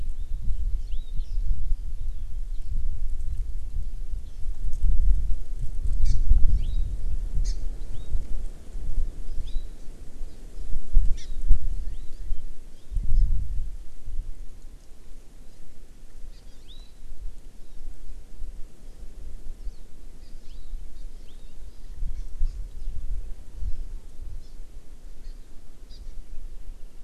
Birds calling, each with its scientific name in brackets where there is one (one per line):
Hawaii Amakihi (Chlorodrepanis virens)